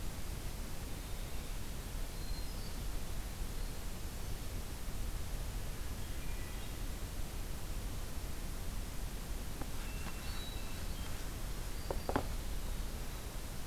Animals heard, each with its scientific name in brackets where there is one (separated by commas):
Hermit Thrush (Catharus guttatus)